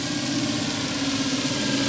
{"label": "anthrophony, boat engine", "recorder": "SoundTrap 500"}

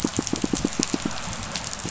{"label": "biophony, pulse", "recorder": "SoundTrap 500"}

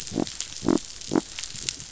{"label": "biophony", "recorder": "SoundTrap 500"}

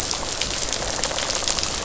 {"label": "biophony, rattle", "recorder": "SoundTrap 500"}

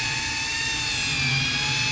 {"label": "anthrophony, boat engine", "recorder": "SoundTrap 500"}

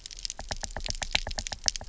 {"label": "biophony, knock", "recorder": "SoundTrap 300"}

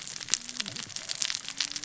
{"label": "biophony, cascading saw", "recorder": "SoundTrap 600 or HydroMoth"}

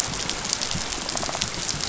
{"label": "biophony", "recorder": "SoundTrap 500"}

